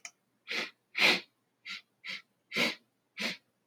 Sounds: Sniff